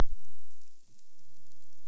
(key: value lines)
label: biophony
recorder: SoundTrap 300